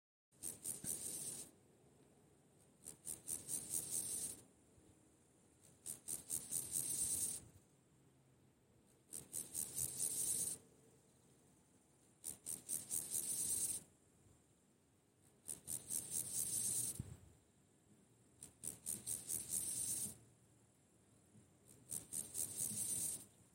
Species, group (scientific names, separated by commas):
Chorthippus dorsatus, Orthoptera